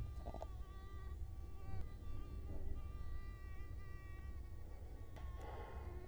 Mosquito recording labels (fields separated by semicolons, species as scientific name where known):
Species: Culex quinquefasciatus; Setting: cup